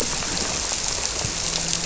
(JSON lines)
{"label": "biophony, grouper", "recorder": "SoundTrap 300"}